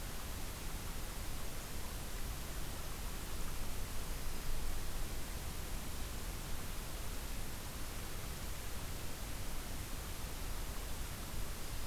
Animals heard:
forest ambience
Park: Acadia National Park